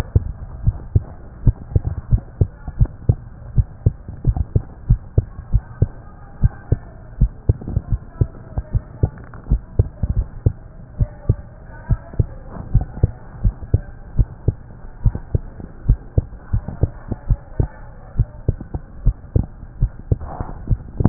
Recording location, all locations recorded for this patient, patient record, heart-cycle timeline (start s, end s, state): tricuspid valve (TV)
aortic valve (AV)+pulmonary valve (PV)+tricuspid valve (TV)+mitral valve (MV)
#Age: Child
#Sex: Female
#Height: 126.0 cm
#Weight: 24.4 kg
#Pregnancy status: False
#Murmur: Absent
#Murmur locations: nan
#Most audible location: nan
#Systolic murmur timing: nan
#Systolic murmur shape: nan
#Systolic murmur grading: nan
#Systolic murmur pitch: nan
#Systolic murmur quality: nan
#Diastolic murmur timing: nan
#Diastolic murmur shape: nan
#Diastolic murmur grading: nan
#Diastolic murmur pitch: nan
#Diastolic murmur quality: nan
#Outcome: Normal
#Campaign: 2015 screening campaign
0.00	10.14	unannotated
10.14	10.28	S1
10.28	10.42	systole
10.42	10.54	S2
10.54	10.98	diastole
10.98	11.10	S1
11.10	11.26	systole
11.26	11.38	S2
11.38	11.88	diastole
11.88	12.02	S1
12.02	12.17	systole
12.17	12.28	S2
12.28	12.72	diastole
12.72	12.86	S1
12.86	13.01	systole
13.01	13.14	S2
13.14	13.42	diastole
13.42	13.54	S1
13.54	13.71	systole
13.71	13.84	S2
13.84	14.14	diastole
14.14	14.28	S1
14.28	14.44	systole
14.44	14.56	S2
14.56	15.01	diastole
15.01	15.16	S1
15.16	15.32	systole
15.32	15.44	S2
15.44	15.86	diastole
15.86	16.00	S1
16.00	16.15	systole
16.15	16.28	S2
16.28	16.50	diastole
16.50	16.64	S1
16.64	16.80	systole
16.80	16.92	S2
16.92	17.28	diastole
17.28	17.40	S1
17.40	17.58	systole
17.58	17.70	S2
17.70	18.14	diastole
18.14	18.28	S1
18.28	18.46	systole
18.46	18.57	S2
18.57	19.04	diastole
19.04	19.16	S1
19.16	19.37	systole
19.37	19.48	S2
19.48	19.78	diastole
19.78	19.92	S1
19.92	20.07	systole
20.07	20.20	S2
20.20	20.68	diastole
20.68	20.80	S1
20.80	21.09	unannotated